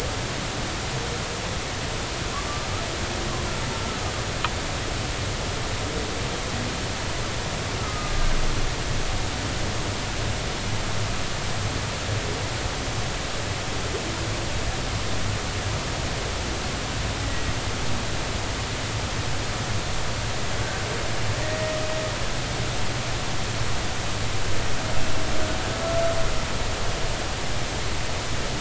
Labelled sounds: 7.8	8.3	humpback whale, 1.2 to 1.3 kHz
21.4	21.8	humpback whale, 1.8 to 1.9 kHz

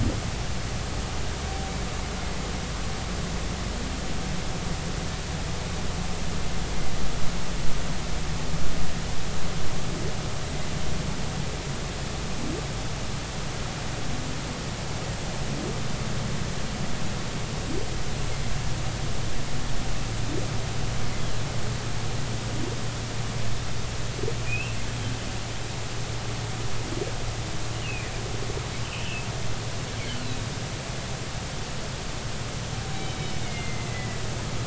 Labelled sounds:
24.5	24.8	humpback whale, 2.4 to 2.9 kHz
27.8	28.1	humpback whale, 2.3 to 3.0 kHz
28.8	29.3	humpback whale, 2.4 to 3.1 kHz
30.2	30.5	humpback whale, 3.7 to 4.2 kHz
32.9	34.2	humpback whale, 1.9 to 3.9 kHz

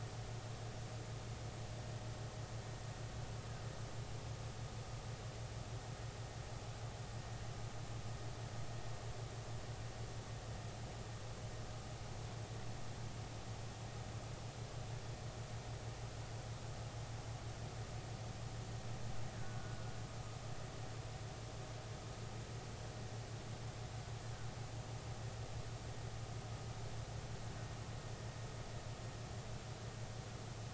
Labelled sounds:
19.3	19.8	killer whale, Bigg's (transient), 1.4 to 1.8 kHz

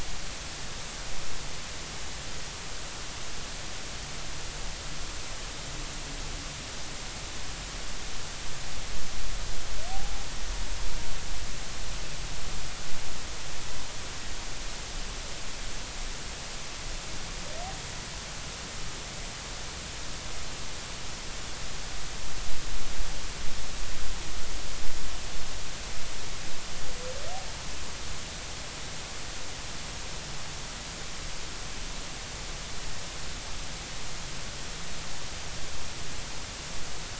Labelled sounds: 9.9	10.2	humpback whale, 0.80 to 0.86 kHz

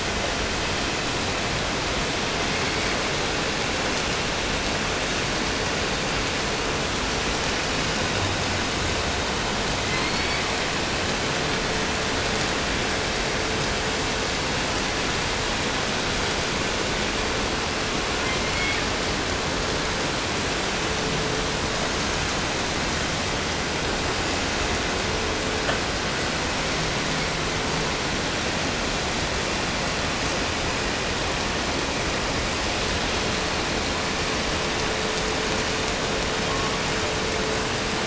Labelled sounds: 2.1	3.3	killer whale, 1.1 to 5.2 kHz
9.6	10.8	killer whale, 1.5 to 5.4 kHz
17.9	19.0	killer whale, 1.5 to 5.1 kHz
36.2	37.0	killer whale, 0.80 to 6.0 kHz

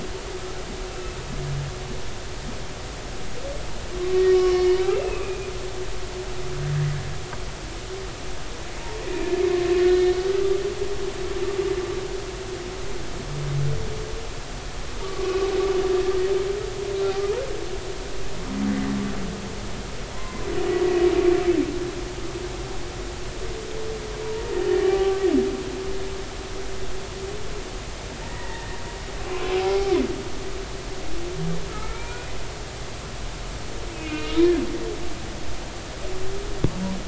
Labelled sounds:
0.9	1.2	humpback whale, 2.6 to 2.7 kHz
4.0	5.5	humpback whale, 1.0 to 3.0 kHz
9.1	10.1	humpback whale, 1.8 to 4.1 kHz
15.0	15.5	humpback whale, 1.1 to 1.3 kHz
20.1	20.5	humpback whale, 0.93 to 2.1 kHz
24.8	25.3	humpback whale, 0.80 to 1.2 kHz
28.3	29.9	humpback whale, 0.80 to 2.0 kHz
31.7	32.2	humpback whale, 0.90 to 2.5 kHz
33.9	34.6	humpback whale, 1.2 to 3.9 kHz

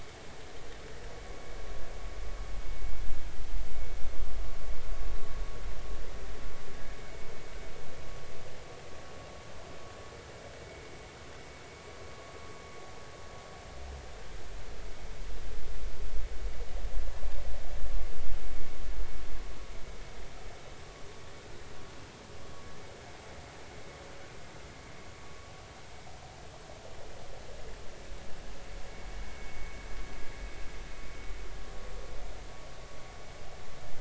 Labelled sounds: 29.3	29.8	vessel noise, 2.1 to 2.2 kHz

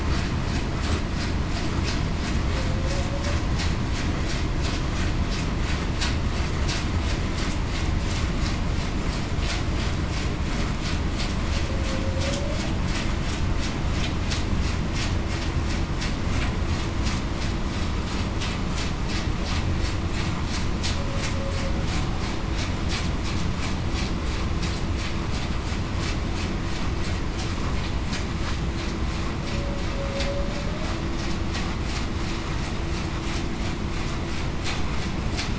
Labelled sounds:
12.2	12.6	humpback whale, 0.52 to 0.63 kHz

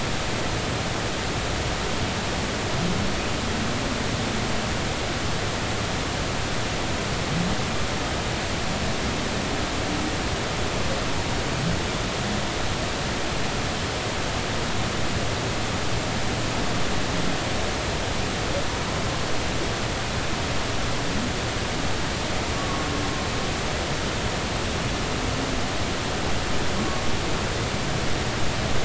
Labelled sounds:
22.5	22.9	humpback whale, 1.1 to 1.2 kHz
26.8	27.0	humpback whale, 1.1 to 1.2 kHz

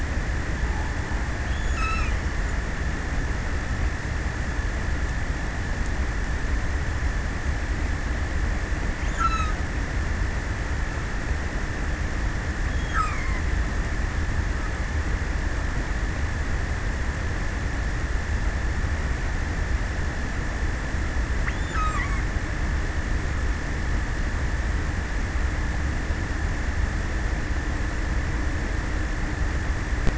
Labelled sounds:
0.9	2.9	killer whale, offshore, 0.47 to 8.0 kHz
8.6	10.1	killer whale, offshore, 0.63 to 8.0 kHz
12.1	14.1	killer whale, offshore, 0.39 to 8.0 kHz
21.0	22.4	killer whale, offshore, 0.39 to 8.0 kHz

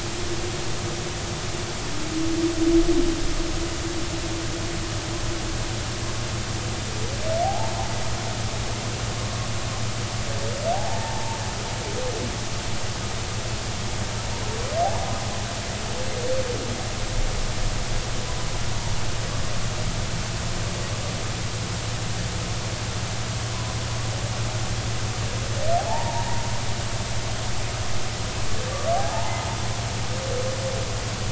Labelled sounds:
7.4	7.7	humpback whale, 0.80 to 0.96 kHz
10.7	11.4	humpback whale, 0.80 to 0.99 kHz
25.8	26.4	humpback whale, 0.80 to 0.99 kHz
29.0	29.4	humpback whale, 0.80 to 1.1 kHz

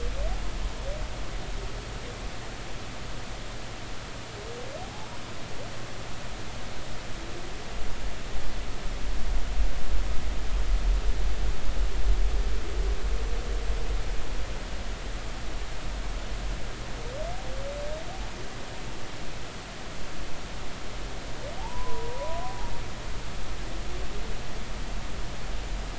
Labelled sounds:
4.8	5.1	humpback whale, 0.80 to 0.93 kHz
21.6	22.4	humpback whale, 0.80 to 1.1 kHz

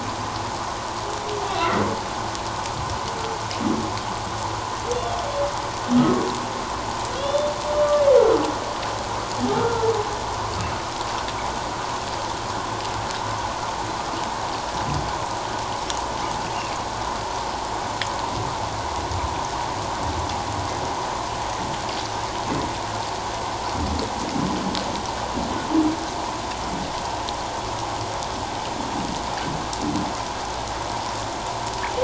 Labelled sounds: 4.9	5.2	humpback whale, 3.2 to 3.6 kHz
7.2	7.5	humpback whale, 2.7 to 3.6 kHz
9.5	9.9	humpback whale, 1.3 to 1.5 kHz

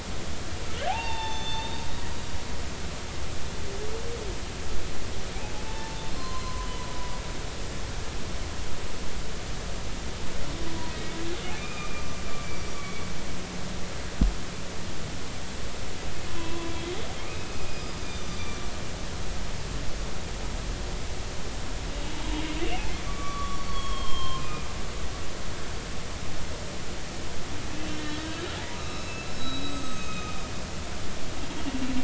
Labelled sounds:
0.9	1.8	humpback whale, 0.80 to 5.4 kHz
5.7	6.9	humpback whale, 0.83 to 3.1 kHz
10.9	11.1	humpback whale, 1.9 to 2.0 kHz
11.6	13.1	humpback whale, 1.1 to 2.5 kHz
16.3	18.6	humpback whale, 0.93 to 6.1 kHz
23.1	24.7	humpback whale, 0.99 to 4.5 kHz
27.8	28.3	humpback whale, 1.8 to 3.1 kHz
28.7	30.4	humpback whale, 1.2 to 6.5 kHz

